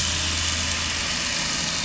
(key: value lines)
label: anthrophony, boat engine
recorder: SoundTrap 500